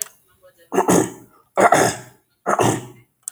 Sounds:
Throat clearing